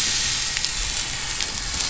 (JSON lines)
{"label": "anthrophony, boat engine", "recorder": "SoundTrap 500"}